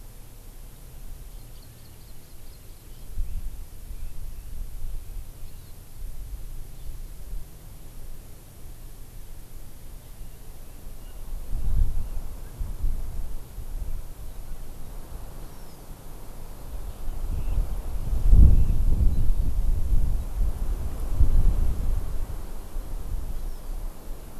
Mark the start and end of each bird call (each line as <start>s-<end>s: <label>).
1.3s-3.1s: Hawaii Amakihi (Chlorodrepanis virens)
3.2s-5.6s: Red-billed Leiothrix (Leiothrix lutea)
5.4s-5.7s: Hawaii Amakihi (Chlorodrepanis virens)
10.2s-12.3s: Red-billed Leiothrix (Leiothrix lutea)
15.4s-15.9s: Hawaii Amakihi (Chlorodrepanis virens)